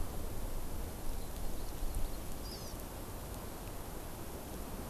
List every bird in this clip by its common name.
Hawaii Amakihi